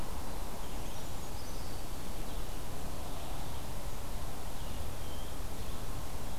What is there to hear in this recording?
Red-eyed Vireo, Brown Creeper, Black-throated Green Warbler